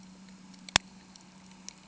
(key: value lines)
label: anthrophony, boat engine
recorder: HydroMoth